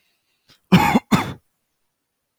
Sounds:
Cough